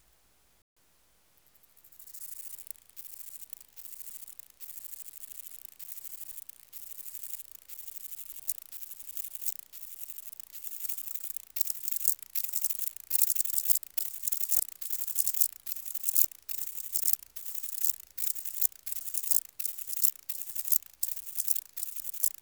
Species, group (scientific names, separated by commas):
Stauroderus scalaris, Orthoptera